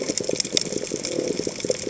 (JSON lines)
{"label": "biophony", "recorder": "HydroMoth"}